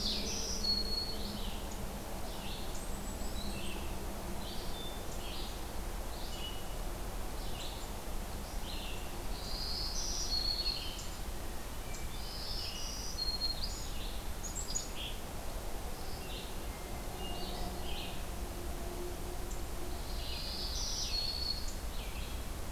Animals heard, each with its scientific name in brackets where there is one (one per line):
Black-throated Green Warbler (Setophaga virens)
Red-eyed Vireo (Vireo olivaceus)
Hermit Thrush (Catharus guttatus)
Yellow-rumped Warbler (Setophaga coronata)
Black-capped Chickadee (Poecile atricapillus)